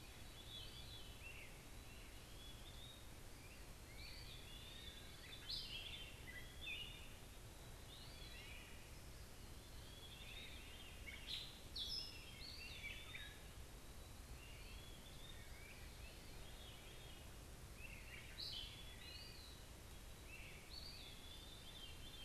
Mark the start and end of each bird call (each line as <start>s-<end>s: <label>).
0.0s-7.1s: Great Crested Flycatcher (Myiarchus crinitus)
0.0s-7.4s: Gray Catbird (Dumetella carolinensis)
0.0s-8.3s: Eastern Wood-Pewee (Contopus virens)
9.7s-22.2s: Eastern Wood-Pewee (Contopus virens)
9.7s-22.2s: Veery (Catharus fuscescens)
11.0s-22.2s: Gray Catbird (Dumetella carolinensis)